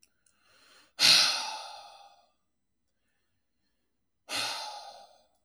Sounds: Sigh